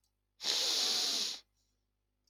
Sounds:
Sniff